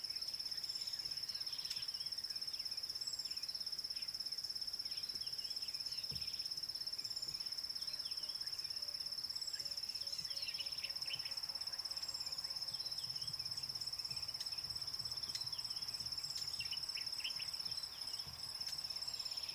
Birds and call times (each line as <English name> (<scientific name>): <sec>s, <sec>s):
Rattling Cisticola (Cisticola chiniana): 10.7s
Common Bulbul (Pycnonotus barbatus): 11.2s, 17.0s